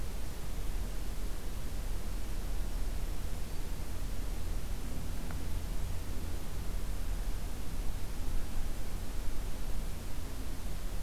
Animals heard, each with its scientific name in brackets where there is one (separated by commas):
Black-throated Green Warbler (Setophaga virens)